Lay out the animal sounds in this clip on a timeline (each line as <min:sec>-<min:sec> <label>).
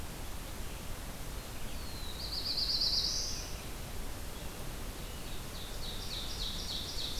0:00.0-0:07.2 Red-eyed Vireo (Vireo olivaceus)
0:01.7-0:03.5 Black-throated Blue Warbler (Setophaga caerulescens)
0:04.9-0:07.2 Ovenbird (Seiurus aurocapilla)